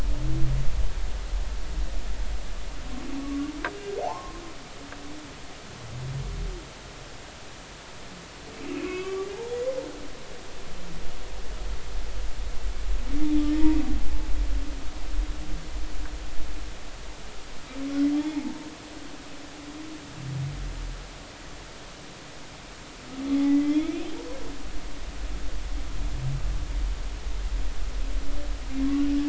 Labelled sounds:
3.2	4.4	humpback whale, 0.80 to 1.2 kHz
8.6	9.3	humpback whale, 1.1 to 2.8 kHz
18.1	18.4	humpback whale, 3.2 to 3.5 kHz
23.4	24.1	humpback whale, 1.9 to 3.5 kHz

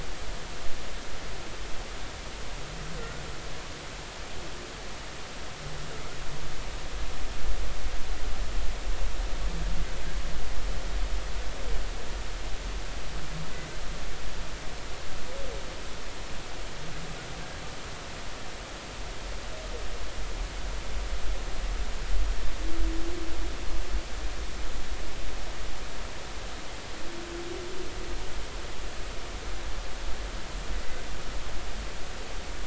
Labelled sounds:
3.0	3.2	humpback whale, 1.3 to 1.5 kHz

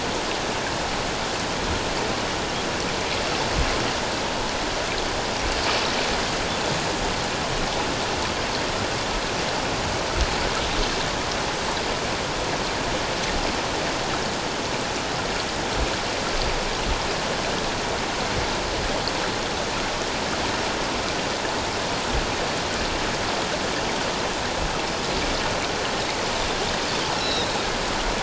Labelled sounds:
27.2	27.5	Pacific white-sided dolphin, 3.6 to 5.6 kHz

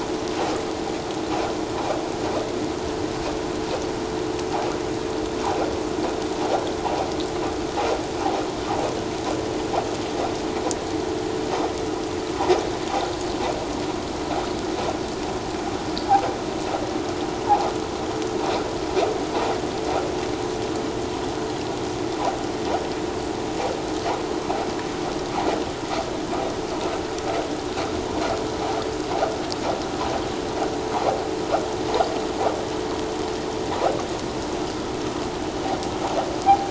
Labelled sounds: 36.4	36.6	vessel noise, 0.78 to 0.94 kHz

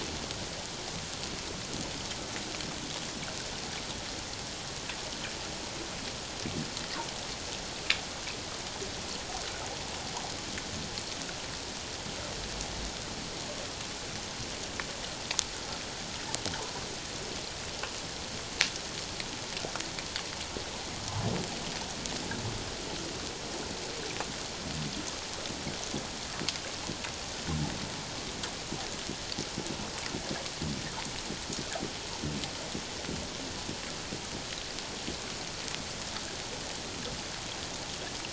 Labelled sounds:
16.6	16.8	humpback whale, 0.84 to 1.1 kHz

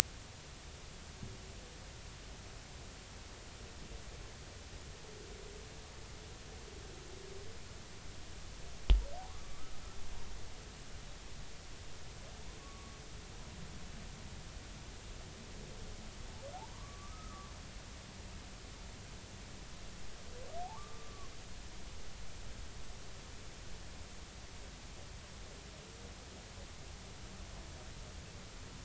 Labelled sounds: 9.3	9.7	humpback whale, 1.0 to 1.3 kHz
12.6	13.0	humpback whale, 1.1 to 1.2 kHz
16.5	17.5	humpback whale, 0.80 to 1.3 kHz
20.7	21.3	humpback whale, 1.0 to 1.2 kHz

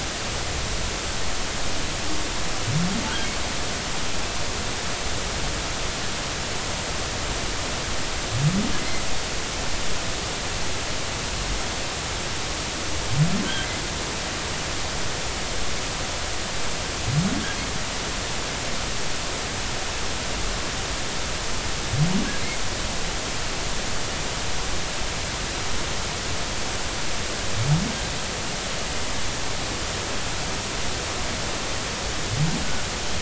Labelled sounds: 8.8	9.0	humpback whale, 2.0 to 2.3 kHz

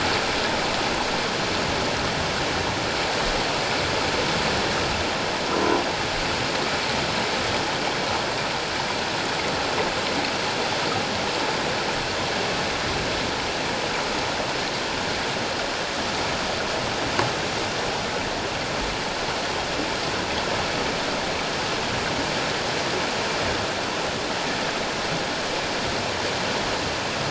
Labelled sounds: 5.5	5.8	croaking sound likely from a nearby submerged object, 0.91 to 1.1 kHz

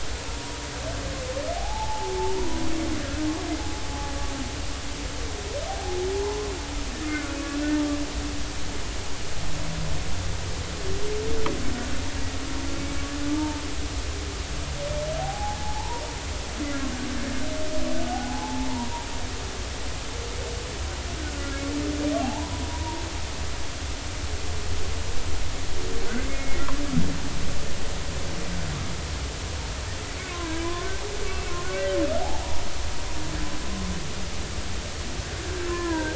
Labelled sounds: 1.6	2.6	humpback whale, 0.80 to 1.0 kHz
5.7	6.0	humpback whale, 0.80 to 0.86 kHz
7.1	7.4	humpback whale, 1.2 to 1.6 kHz
13.3	13.6	humpback whale, 0.86 to 0.96 kHz
15.2	16.0	humpback whale, 0.80 to 1.0 kHz
18.1	19.1	humpback whale, 0.80 to 1.1 kHz
21.2	23.0	humpback whale, 0.80 to 1.6 kHz
26.2	26.6	humpback whale, 2.0 to 2.2 kHz
30.3	30.9	humpback whale, 0.93 to 1.2 kHz
31.3	32.6	humpback whale, 0.80 to 2.8 kHz
35.7	36.1	humpback whale, 0.90 to 1.8 kHz

